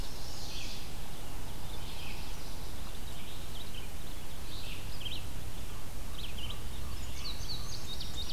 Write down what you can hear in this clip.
Red-eyed Vireo, Indigo Bunting